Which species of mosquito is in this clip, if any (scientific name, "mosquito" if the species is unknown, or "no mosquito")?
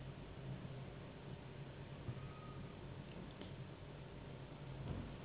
Anopheles gambiae s.s.